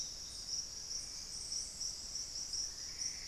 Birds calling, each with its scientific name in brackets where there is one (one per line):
Plumbeous Antbird (Myrmelastes hyperythrus)